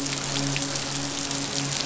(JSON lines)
{"label": "biophony, midshipman", "recorder": "SoundTrap 500"}